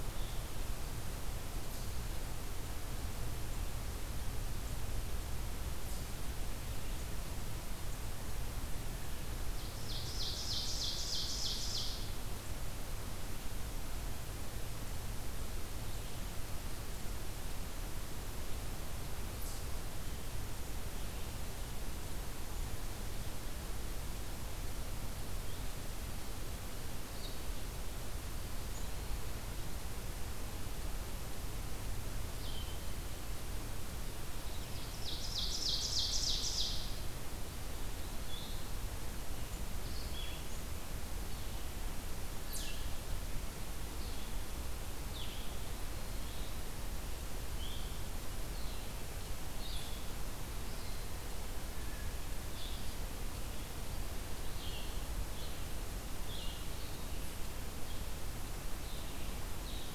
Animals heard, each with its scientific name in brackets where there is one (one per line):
Blue-headed Vireo (Vireo solitarius)
Ovenbird (Seiurus aurocapilla)